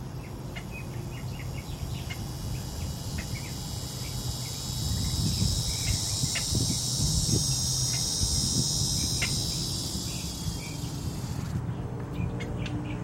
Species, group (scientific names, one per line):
Neotibicen davisi
Cicadidae